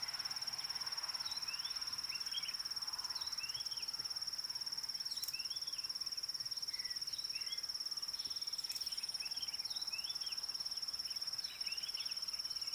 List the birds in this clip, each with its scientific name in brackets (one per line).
Red-backed Scrub-Robin (Cercotrichas leucophrys)
White Helmetshrike (Prionops plumatus)